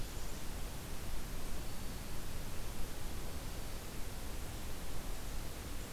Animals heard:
forest ambience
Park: Hubbard Brook Experimental Forest